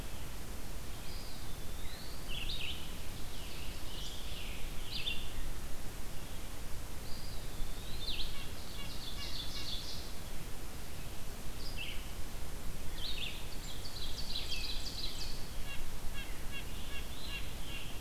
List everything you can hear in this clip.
Eastern Wood-Pewee, Red-eyed Vireo, Ovenbird, Scarlet Tanager, Red-breasted Nuthatch